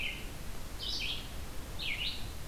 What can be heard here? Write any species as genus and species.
Vireo olivaceus